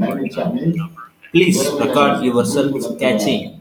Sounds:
Cough